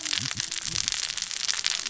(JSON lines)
{"label": "biophony, cascading saw", "recorder": "SoundTrap 600 or HydroMoth"}